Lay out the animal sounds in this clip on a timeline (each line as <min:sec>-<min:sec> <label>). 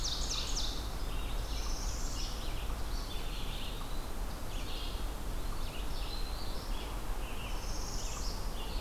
0:00.0-0:00.9 Ovenbird (Seiurus aurocapilla)
0:00.0-0:08.8 Red-eyed Vireo (Vireo olivaceus)
0:00.0-0:08.8 unknown mammal
0:01.1-0:02.5 Northern Parula (Setophaga americana)
0:03.0-0:04.1 Eastern Wood-Pewee (Contopus virens)
0:05.3-0:06.4 Eastern Wood-Pewee (Contopus virens)
0:07.4-0:08.5 Northern Parula (Setophaga americana)